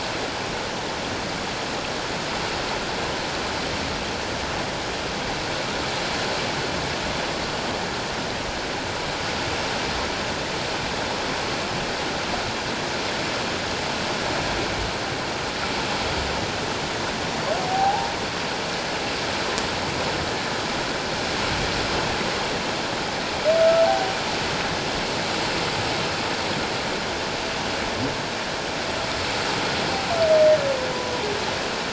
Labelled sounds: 17.6	18.1	humpback whale, 0.78 to 0.97 kHz
23.8	24.2	humpback whale, 0.78 to 0.94 kHz

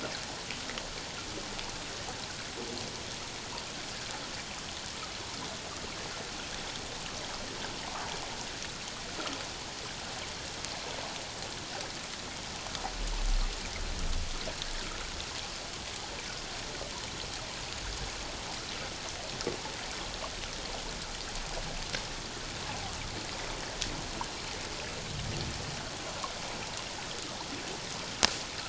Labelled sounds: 7.8	8.1	water noise, 0.84 to 1.3 kHz

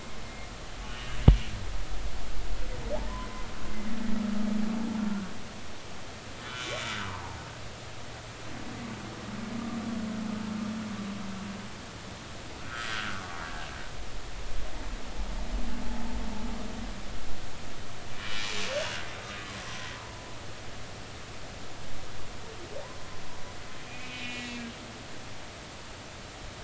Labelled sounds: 0.2	0.5	humpback whale, 2.1 to 2.2 kHz
0.8	1.2	humpback whale, 2.8 to 3.0 kHz
6.4	7.4	humpback whale, 0.80 to 3.6 kHz
12.6	13.4	humpback whale, 1.1 to 1.7 kHz
18.7	20.2	humpback whale, 0.90 to 3.0 kHz
23.9	24.7	humpback whale, 1.9 to 2.8 kHz

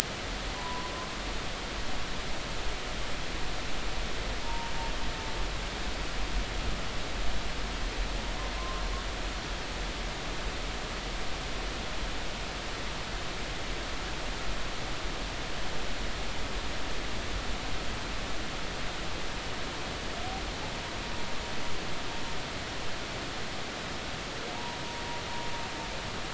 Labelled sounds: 0.5	0.9	humpback whale, 0.80 to 1.1 kHz
4.4	4.7	humpback whale, 0.86 to 0.99 kHz
8.5	8.8	humpback whale, 0.99 to 1.2 kHz

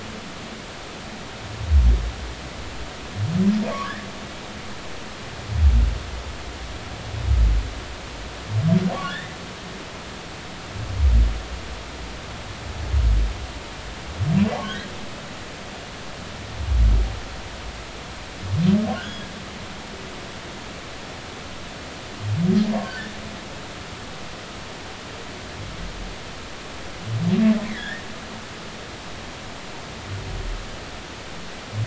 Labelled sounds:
3.7	4.0	humpback whale, 0.96 to 1.4 kHz
9.0	9.4	humpback whale, 1.4 to 2.1 kHz
14.6	14.9	humpback whale, 1.4 to 1.7 kHz
19.0	19.3	humpback whale, 3.1 to 3.5 kHz
22.8	23.1	humpback whale, 1.4 to 1.6 kHz
27.6	28.0	humpback whale, 1.5 to 2.4 kHz

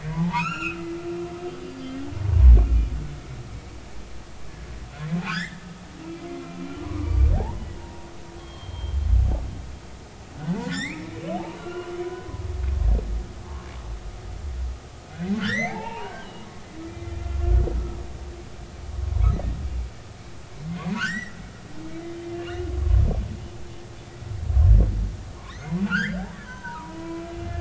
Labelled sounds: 0.1	0.8	humpback whale, 0.80 to 7.0 kHz
1.8	2.9	humpback whale, 2.3 to 3.4 kHz
5.2	5.6	humpback whale, 1.2 to 3.8 kHz
6.8	8.1	humpback whale, 0.80 to 1.2 kHz
8.4	9.0	humpback whale, 0.99 to 4.4 kHz
10.6	11.2	humpback whale, 1.3 to 7.6 kHz
11.6	12.3	humpback whale, 1.3 to 1.5 kHz
15.4	16.5	humpback whale, 0.80 to 6.4 kHz
16.9	17.7	humpback whale, 1.3 to 2.5 kHz
20.8	21.4	humpback whale, 0.90 to 7.8 kHz
22.3	22.7	humpback whale, 2.7 to 2.9 kHz
25.5	27.5	humpback whale, 0.90 to 5.1 kHz

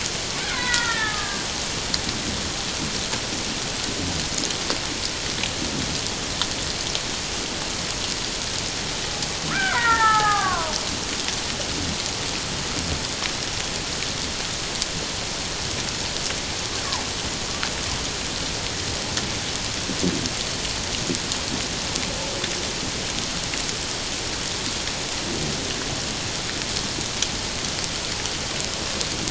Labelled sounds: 0.4	1.5	killer whale, Bigg's (transient), 0.88 to 2.2 kHz
9.5	10.7	killer whale, Bigg's (transient), 0.78 to 2.4 kHz

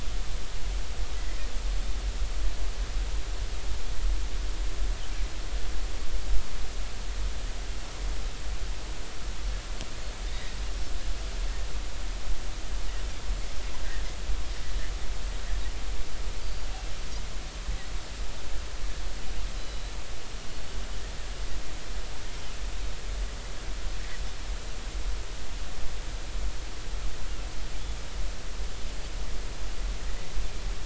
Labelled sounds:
16.4	16.7	Pacific white-sided dolphin, 4.6 to 4.7 kHz
19.6	19.9	Pacific white-sided dolphin, 3.9 to 4.1 kHz

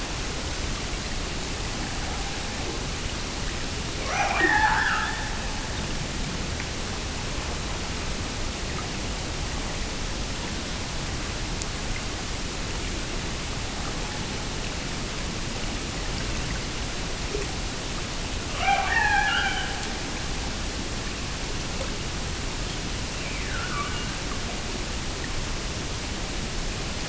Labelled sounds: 3.9	5.9	killer whale, Bigg's (transient), Gulf of Alaska transient, 0.32 to 6.2 kHz
18.5	20.1	killer whale, Bigg's (transient), Gulf of Alaska transient, 0.48 to 3.3 kHz
22.6	24.3	killer whale, Bigg's (transient), Gulf of Alaska transient, 1.1 to 3.5 kHz

